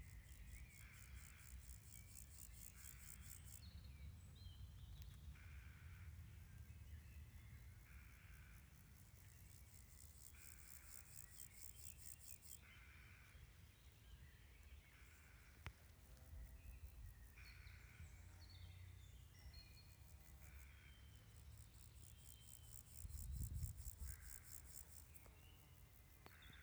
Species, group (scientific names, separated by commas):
Pseudochorthippus montanus, Orthoptera